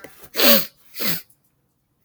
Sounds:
Sniff